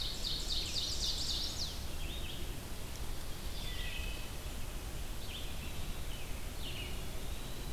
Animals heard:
Red-eyed Vireo (Vireo olivaceus), Eastern Wood-Pewee (Contopus virens), Ovenbird (Seiurus aurocapilla), Wood Thrush (Hylocichla mustelina)

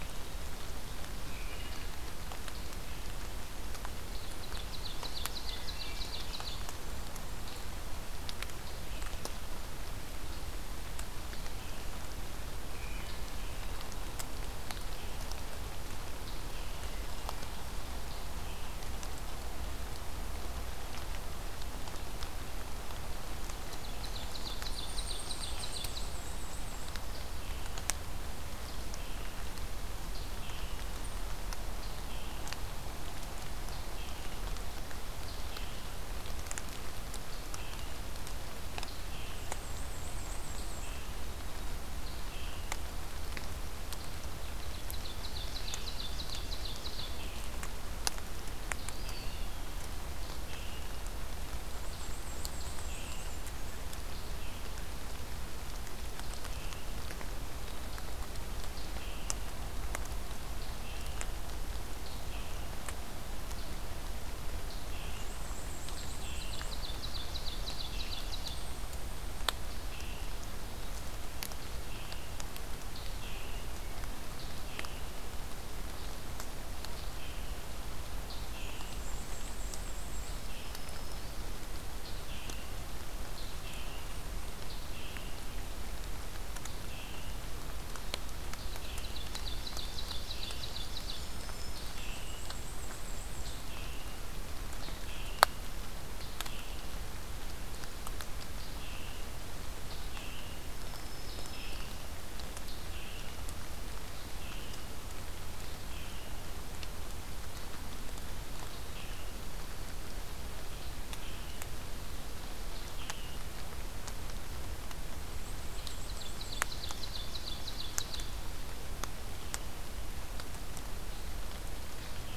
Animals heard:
Blackburnian Warbler (Setophaga fusca), Scarlet Tanager (Piranga olivacea), Eastern Wood-Pewee (Contopus virens), unidentified call, Ovenbird (Seiurus aurocapilla), Black-throated Green Warbler (Setophaga virens), Black-and-white Warbler (Mniotilta varia), Wood Thrush (Hylocichla mustelina)

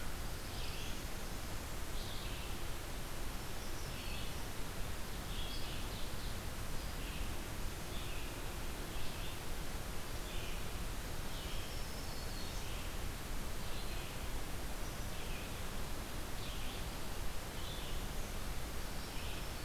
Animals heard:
Pine Warbler (Setophaga pinus), Red-eyed Vireo (Vireo olivaceus), Black-throated Green Warbler (Setophaga virens), Ovenbird (Seiurus aurocapilla)

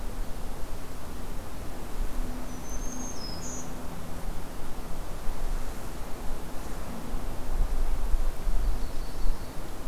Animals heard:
Yellow-rumped Warbler (Setophaga coronata), Black-throated Green Warbler (Setophaga virens)

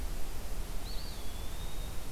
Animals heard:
Eastern Wood-Pewee (Contopus virens)

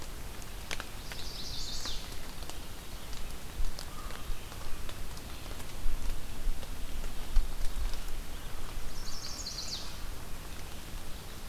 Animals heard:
Chestnut-sided Warbler (Setophaga pensylvanica), American Crow (Corvus brachyrhynchos)

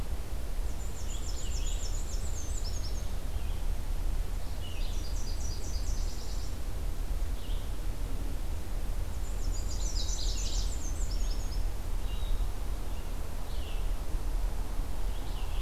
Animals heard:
Canada Warbler (Cardellina canadensis), Nashville Warbler (Leiothlypis ruficapilla), Black-and-white Warbler (Mniotilta varia), Red-eyed Vireo (Vireo olivaceus)

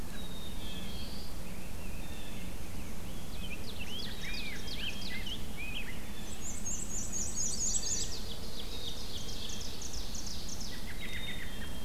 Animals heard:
Rose-breasted Grosbeak (Pheucticus ludovicianus), Black-throated Blue Warbler (Setophaga caerulescens), Black-capped Chickadee (Poecile atricapillus), Blue Jay (Cyanocitta cristata), American Robin (Turdus migratorius), Black-and-white Warbler (Mniotilta varia), Chestnut-sided Warbler (Setophaga pensylvanica), Ovenbird (Seiurus aurocapilla)

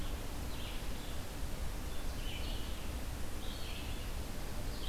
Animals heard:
Red-eyed Vireo (Vireo olivaceus)

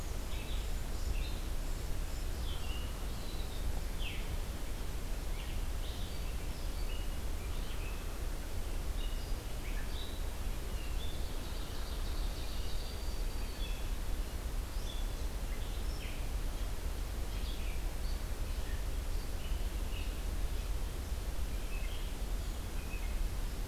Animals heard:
Black-throated Green Warbler (Setophaga virens), Ovenbird (Seiurus aurocapilla), Red-eyed Vireo (Vireo olivaceus)

